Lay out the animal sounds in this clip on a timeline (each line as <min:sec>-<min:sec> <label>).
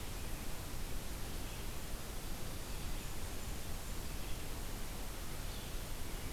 0:00.0-0:06.3 Red-eyed Vireo (Vireo olivaceus)
0:02.5-0:04.1 Blackburnian Warbler (Setophaga fusca)